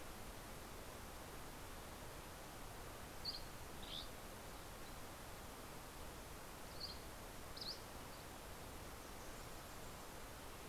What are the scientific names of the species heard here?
Empidonax oberholseri